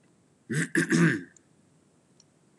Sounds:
Throat clearing